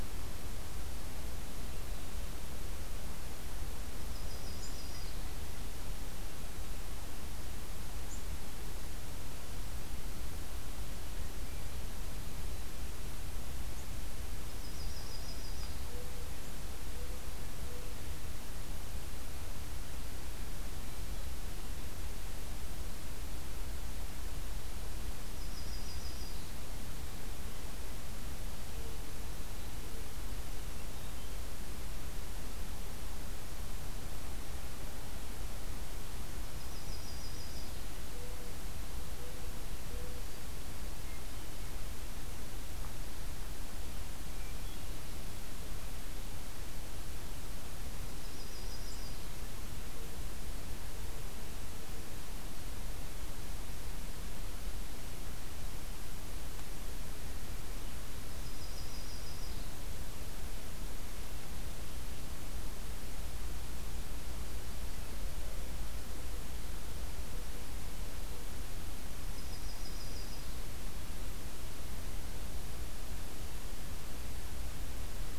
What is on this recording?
Yellow-rumped Warbler, Mourning Dove, Hermit Thrush